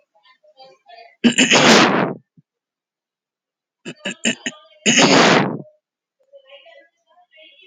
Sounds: Throat clearing